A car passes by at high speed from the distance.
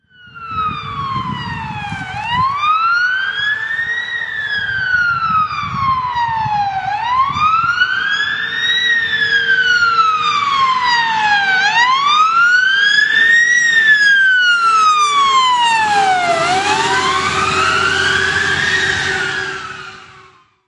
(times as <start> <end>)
12.0 20.0